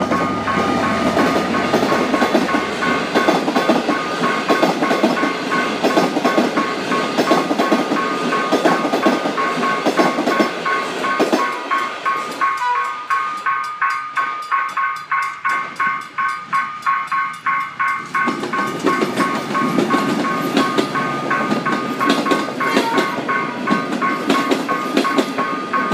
What kind of vehicle is passing?
train